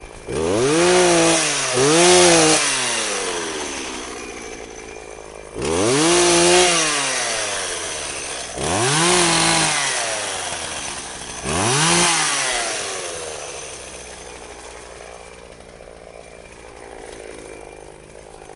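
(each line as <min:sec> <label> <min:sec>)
0:00.0 A lawnmower producing periodic sounds that grow louder as it starts up and then fade occasionally. 0:18.6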